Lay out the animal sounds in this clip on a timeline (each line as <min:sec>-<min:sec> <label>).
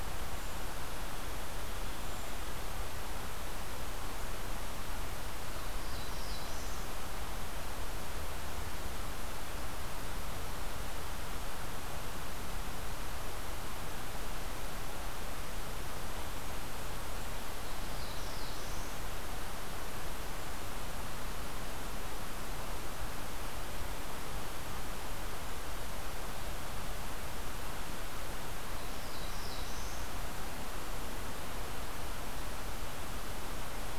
0:00.3-0:00.7 Brown Creeper (Certhia americana)
0:01.9-0:02.4 Brown Creeper (Certhia americana)
0:05.7-0:06.9 Black-throated Blue Warbler (Setophaga caerulescens)
0:17.5-0:18.9 Black-throated Blue Warbler (Setophaga caerulescens)
0:28.7-0:30.2 Black-throated Blue Warbler (Setophaga caerulescens)